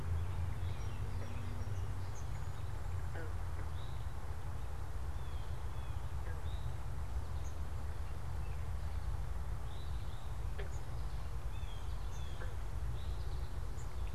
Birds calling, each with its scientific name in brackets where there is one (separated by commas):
Eastern Towhee (Pipilo erythrophthalmus), American Robin (Turdus migratorius), Blue Jay (Cyanocitta cristata), American Goldfinch (Spinus tristis)